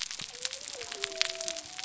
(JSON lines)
{"label": "biophony", "recorder": "SoundTrap 300"}